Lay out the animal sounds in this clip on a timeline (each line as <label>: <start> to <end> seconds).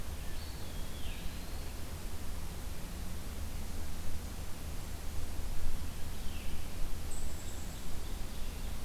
Eastern Wood-Pewee (Contopus virens): 0.3 to 1.8 seconds
Veery (Catharus fuscescens): 0.8 to 1.3 seconds
Veery (Catharus fuscescens): 6.1 to 6.7 seconds
Ovenbird (Seiurus aurocapilla): 7.2 to 8.8 seconds